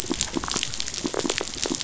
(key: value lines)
label: biophony
recorder: SoundTrap 500